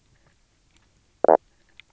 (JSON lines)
{"label": "biophony, knock croak", "recorder": "SoundTrap 300"}